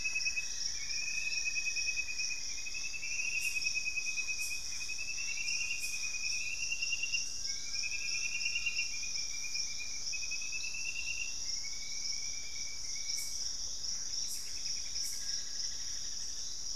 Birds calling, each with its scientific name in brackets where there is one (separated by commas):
Thrush-like Wren (Campylorhynchus turdinus), Straight-billed Woodcreeper (Dendroplex picus), Collared Trogon (Trogon collaris), Cinnamon-rumped Foliage-gleaner (Philydor pyrrhodes), Gray Antbird (Cercomacra cinerascens), Black-faced Antthrush (Formicarius analis)